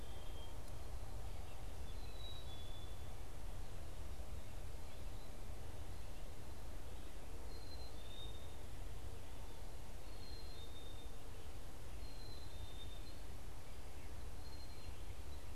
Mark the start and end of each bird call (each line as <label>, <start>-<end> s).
Black-capped Chickadee (Poecile atricapillus), 0.0-15.6 s